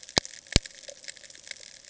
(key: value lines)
label: ambient
recorder: HydroMoth